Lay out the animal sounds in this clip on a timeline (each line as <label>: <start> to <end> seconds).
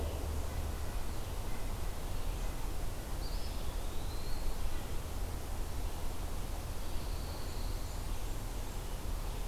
Eastern Wood-Pewee (Contopus virens): 2.9 to 4.6 seconds
Pine Warbler (Setophaga pinus): 6.7 to 8.1 seconds
Blackburnian Warbler (Setophaga fusca): 7.8 to 9.0 seconds